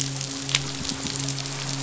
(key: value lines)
label: biophony
recorder: SoundTrap 500

label: biophony, midshipman
recorder: SoundTrap 500